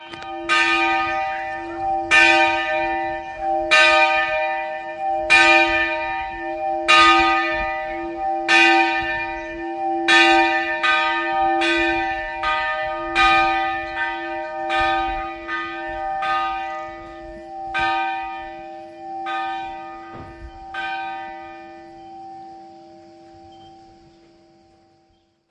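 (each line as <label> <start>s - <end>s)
A church bell rings loudly and uniformly. 0.0s - 17.7s
A church bell rings softly and evenly. 17.7s - 22.7s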